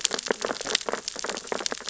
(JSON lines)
{"label": "biophony, sea urchins (Echinidae)", "recorder": "SoundTrap 600 or HydroMoth"}